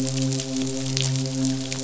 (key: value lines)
label: biophony, midshipman
recorder: SoundTrap 500